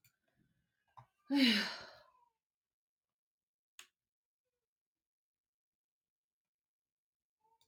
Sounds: Sigh